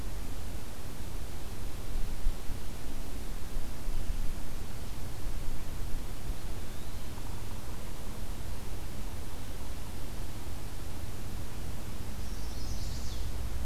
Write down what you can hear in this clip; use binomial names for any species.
Contopus virens, Setophaga pensylvanica